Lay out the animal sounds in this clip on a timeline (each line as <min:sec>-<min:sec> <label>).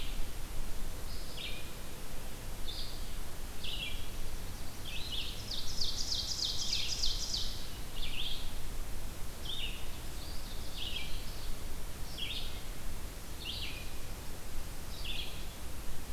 0:00.0-0:15.6 Red-eyed Vireo (Vireo olivaceus)
0:04.0-0:05.5 Yellow-rumped Warbler (Setophaga coronata)
0:05.0-0:07.8 Ovenbird (Seiurus aurocapilla)
0:09.9-0:11.5 Ovenbird (Seiurus aurocapilla)
0:10.0-0:11.6 Eastern Wood-Pewee (Contopus virens)